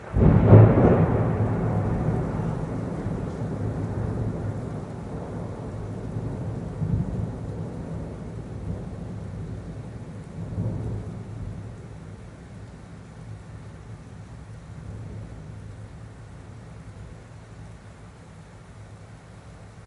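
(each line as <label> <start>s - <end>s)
Thunder and its echo fade out slowly. 0.0s - 16.2s
Rain dripping. 12.3s - 19.9s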